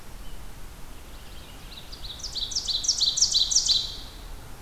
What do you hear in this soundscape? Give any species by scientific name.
Haemorhous purpureus, Seiurus aurocapilla